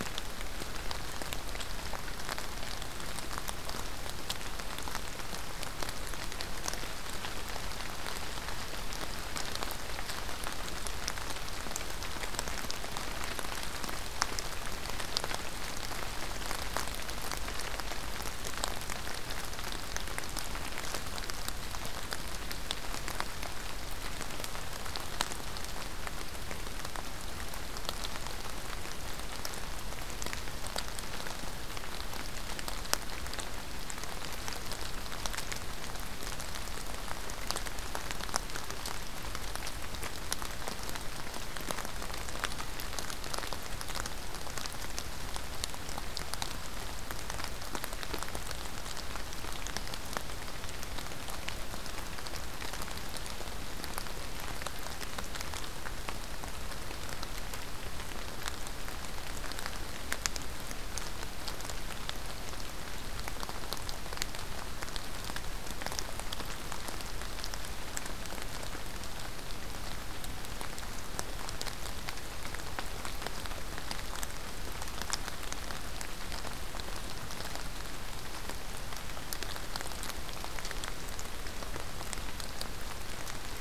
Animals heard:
forest ambience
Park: Acadia National Park